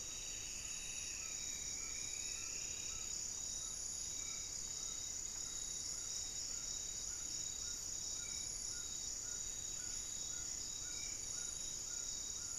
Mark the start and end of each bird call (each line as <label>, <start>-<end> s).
Striped Woodcreeper (Xiphorhynchus obsoletus), 0.0-3.2 s
Amazonian Trogon (Trogon ramonianus), 0.0-12.6 s
Spot-winged Antshrike (Pygiptila stellaris), 4.0-12.6 s
unidentified bird, 4.3-7.0 s
Goeldi's Antbird (Akletos goeldii), 8.8-11.7 s